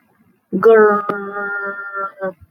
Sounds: Throat clearing